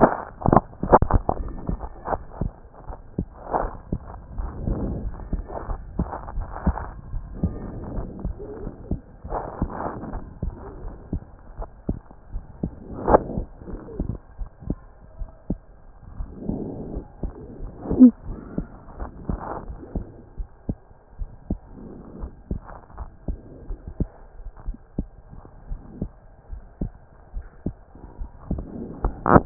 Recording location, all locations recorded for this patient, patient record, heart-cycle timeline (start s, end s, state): pulmonary valve (PV)
aortic valve (AV)+pulmonary valve (PV)+tricuspid valve (TV)+mitral valve (MV)
#Age: Child
#Sex: Male
#Height: 133.0 cm
#Weight: 23.3 kg
#Pregnancy status: False
#Murmur: Absent
#Murmur locations: nan
#Most audible location: nan
#Systolic murmur timing: nan
#Systolic murmur shape: nan
#Systolic murmur grading: nan
#Systolic murmur pitch: nan
#Systolic murmur quality: nan
#Diastolic murmur timing: nan
#Diastolic murmur shape: nan
#Diastolic murmur grading: nan
#Diastolic murmur pitch: nan
#Diastolic murmur quality: nan
#Outcome: Normal
#Campaign: 2014 screening campaign
0.00	24.53	unannotated
24.53	24.66	diastole
24.66	24.78	S1
24.78	24.98	systole
24.98	25.08	S2
25.08	25.69	diastole
25.69	25.80	S1
25.80	26.00	systole
26.00	26.10	S2
26.10	26.52	diastole
26.52	26.62	S1
26.62	26.80	systole
26.80	26.92	S2
26.92	27.34	diastole
27.34	27.46	S1
27.46	27.64	systole
27.64	27.74	S2
27.74	28.20	diastole
28.20	28.30	S1
28.30	28.50	systole
28.50	28.64	S2
28.64	29.04	diastole
29.04	29.46	unannotated